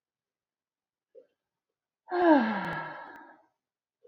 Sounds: Sigh